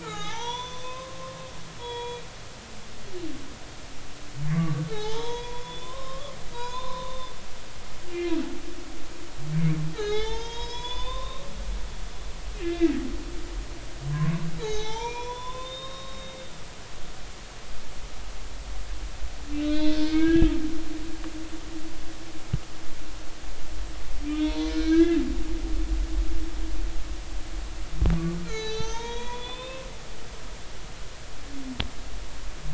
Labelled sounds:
0.0	1.4	humpback whale, 0.80 to 6.1 kHz
1.8	2.2	humpback whale, 0.90 to 3.9 kHz
4.5	7.3	humpback whale, 0.80 to 5.3 kHz
8.1	8.4	humpback whale, 2.6 to 2.9 kHz
9.9	11.5	humpback whale, 0.80 to 6.9 kHz
12.6	13.0	humpback whale, 1.6 to 2.8 kHz
14.6	16.4	humpback whale, 0.80 to 6.6 kHz
19.6	20.5	humpback whale, 1.2 to 4.2 kHz
24.2	25.2	humpback whale, 0.90 to 4.2 kHz
28.4	30.4	humpback whale, 0.83 to 6.7 kHz

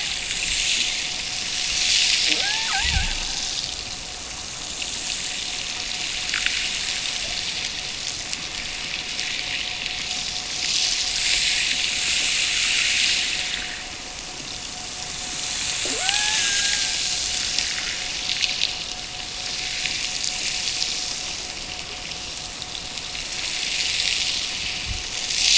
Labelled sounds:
2.2	3.3	killer whale, Bigg's (transient), Gulf of Alaska transient, 0.18 to 1.9 kHz
15.8	17.1	killer whale, Bigg's (transient), Gulf of Alaska transient, 0.16 to 1.8 kHz

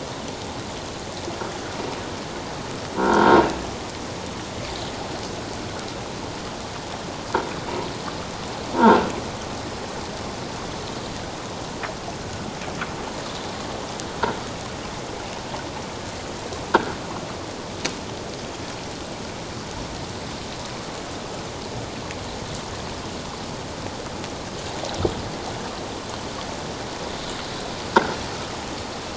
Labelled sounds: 3.0	3.4	croaking sound likely from a nearby submerged object, 1.3 to 1.7 kHz
8.8	9.0	croaking sound likely from a nearby submerged object, 1.2 to 1.7 kHz

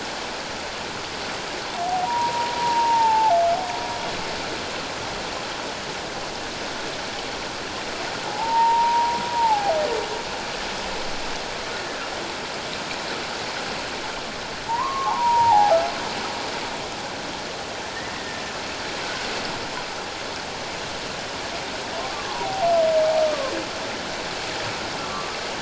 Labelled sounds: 2.0	3.4	humpback whale, 0.78 to 1.0 kHz
8.2	9.7	humpback whale, 0.78 to 1.0 kHz
14.7	15.8	humpback whale, 0.78 to 1.2 kHz
18.1	18.4	humpback whale, 1.8 to 2.0 kHz
22.0	22.3	humpback whale, 1.0 to 1.2 kHz
23.2	23.5	humpback whale, 1.0 to 1.3 kHz
25.0	25.3	humpback whale, 1.0 to 1.2 kHz

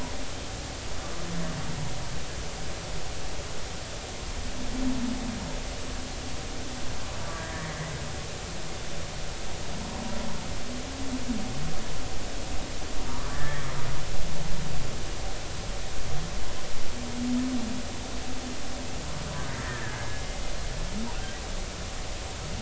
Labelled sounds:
7.4	7.7	humpback whale, 1.7 to 2.0 kHz
13.1	13.7	humpback whale, 0.90 to 2.0 kHz
19.6	20.2	humpback whale, 1.5 to 2.0 kHz

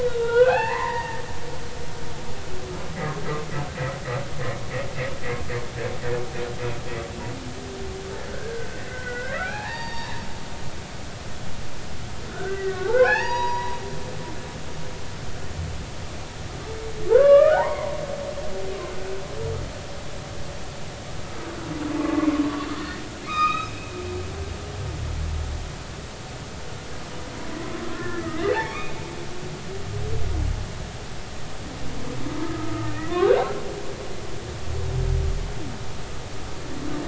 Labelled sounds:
0.0	1.2	humpback whale, 0.80 to 3.0 kHz
3.7	4.0	humpback whale, 1.8 to 2.0 kHz
8.3	10.2	humpback whale, 0.80 to 4.8 kHz
12.3	13.8	humpback whale, 0.80 to 6.8 kHz
17.1	18.0	humpback whale, 0.80 to 2.5 kHz
22.0	23.8	humpback whale, 0.96 to 6.5 kHz
27.8	29.0	humpback whale, 0.99 to 2.3 kHz
32.4	33.1	humpback whale, 1.2 to 2.0 kHz

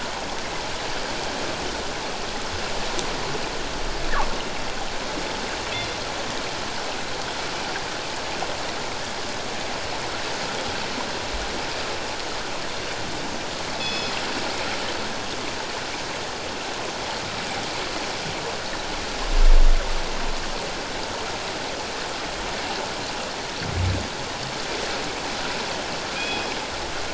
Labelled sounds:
13.8	14.2	killer whale, northern resident, G clan, call N24ii, 2.5 to 5.2 kHz
26.2	26.5	killer whale, northern resident, G clan, call N24ii, 2.4 to 5.1 kHz

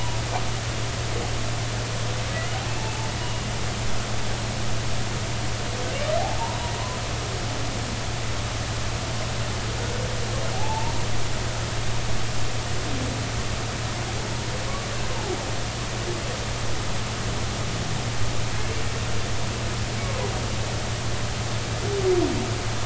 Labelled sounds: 10.5	11.0	humpback whale, 0.80 to 0.99 kHz
18.6	18.9	humpback whale, 2.6 to 2.8 kHz

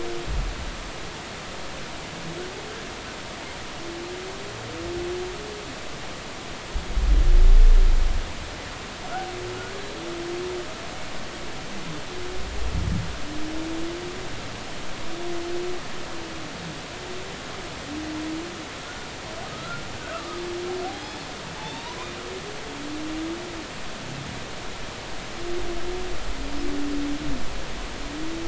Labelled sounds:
18.8	19.8	humpback whale, 1.2 to 1.5 kHz
20.1	20.4	humpback whale, 1.1 to 1.4 kHz
20.9	21.3	humpback whale, 3.2 to 5.2 kHz
21.6	22.0	humpback whale, 0.83 to 3.8 kHz

